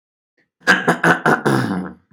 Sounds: Throat clearing